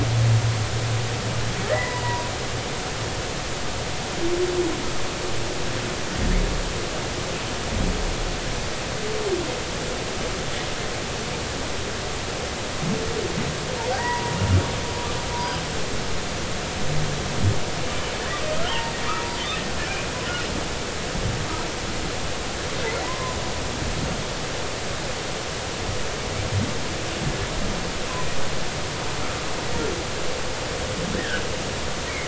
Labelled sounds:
1.6	2.3	humpback whale, 0.90 to 2.1 kHz
14.0	14.3	humpback whale, 0.90 to 2.0 kHz
15.4	15.6	humpback whale, 4.8 to 5.0 kHz
18.7	18.9	humpback whale, 2.6 to 3.3 kHz
23.0	23.4	humpback whale, 0.86 to 1.1 kHz
31.2	31.4	humpback whale, 1.4 to 1.9 kHz

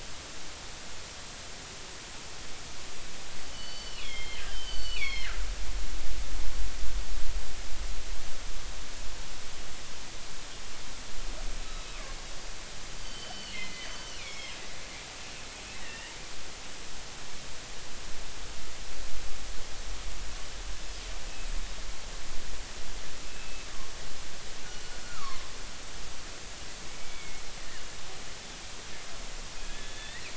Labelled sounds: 3.5	5.5	killer whale, northern resident, G clan, GG subclan, call N23ii, 1.2 to 4.7 kHz
13.0	14.6	killer whale, northern resident, G clan, GG subclan, call N23ii, 1.6 to 5.3 kHz
15.8	16.1	killer whale, northern resident, 1.8 to 3.0 kHz
23.2	23.7	killer whale, northern resident, G clan, GG subclan, call N44, 2.6 to 2.7 kHz
24.7	25.5	killer whale, northern resident, G clan, GG subclan, call N23ii, 0.99 to 2.9 kHz
26.9	27.4	killer whale, northern resident, G clan, 2.1 to 2.4 kHz
29.6	30.3	killer whale, northern resident, G clan, 1.6 to 3.5 kHz
29.7	30.0	killer whale, northern resident, G clan, GG subclan, 3.3 to 3.5 kHz

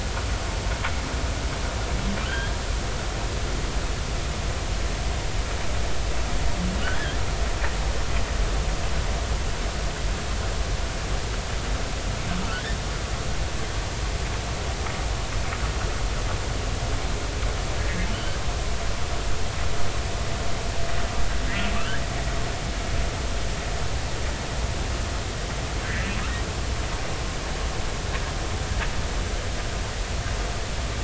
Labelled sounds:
2.2	2.5	humpback whale, 1.4 to 3.3 kHz

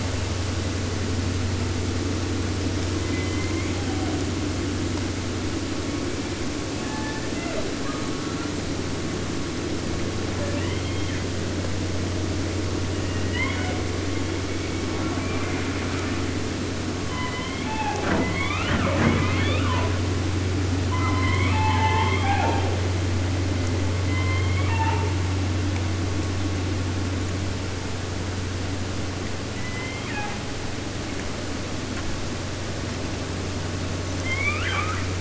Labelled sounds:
2.9	4.2	killer whale, southern resident, J pod, call S01, 0.50 to 3.4 kHz
6.7	8.6	killer whale, 0.18 to 4.3 kHz
10.3	11.5	killer whale, 0.38 to 4.2 kHz
12.9	13.9	killer whale, southern resident, 0.50 to 3.8 kHz
14.1	16.3	killer whale, 0.39 to 3.7 kHz
16.9	18.2	killer whale, southern resident, J pod, call S01, 0.48 to 4.5 kHz
18.2	20.1	killer whale, 0.16 to 5.1 kHz
20.8	23.0	killer whale, 0.28 to 5.0 kHz
24.0	25.2	killer whale, southern resident, J pod, call S01, 0.50 to 4.6 kHz
29.5	30.5	killer whale, southern resident, J pod, call S01, 0.50 to 4.3 kHz
34.0	35.1	killer whale, 0.50 to 8.0 kHz

